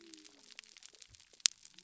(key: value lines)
label: biophony
recorder: SoundTrap 300